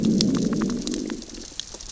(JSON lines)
{"label": "biophony, growl", "recorder": "SoundTrap 600 or HydroMoth"}